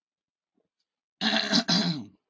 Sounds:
Throat clearing